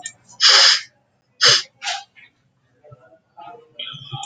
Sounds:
Sniff